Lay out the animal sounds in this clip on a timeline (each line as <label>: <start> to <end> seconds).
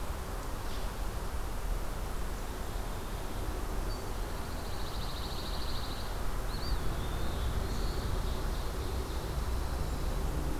Pine Warbler (Setophaga pinus): 4.0 to 6.2 seconds
Eastern Wood-Pewee (Contopus virens): 6.4 to 7.6 seconds
Black-throated Blue Warbler (Setophaga caerulescens): 6.9 to 8.1 seconds
Ovenbird (Seiurus aurocapilla): 7.6 to 9.3 seconds
Pine Warbler (Setophaga pinus): 9.0 to 10.3 seconds